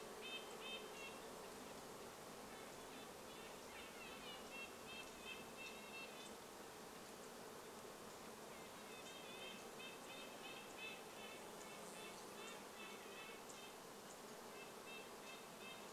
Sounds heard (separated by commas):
Red-breasted Nuthatch song, Red-breasted Nuthatch call, insect buzz